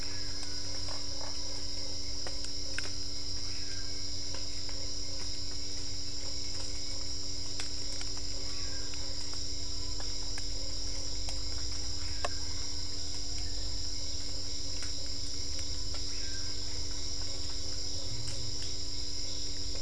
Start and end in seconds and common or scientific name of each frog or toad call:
2.7	7.8	Usina tree frog
7.8	19.8	Dendropsophus cruzi
15.6	17.0	Usina tree frog